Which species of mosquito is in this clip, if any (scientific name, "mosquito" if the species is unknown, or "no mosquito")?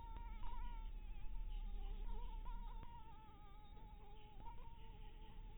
Anopheles maculatus